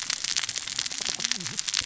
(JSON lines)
{"label": "biophony, cascading saw", "recorder": "SoundTrap 600 or HydroMoth"}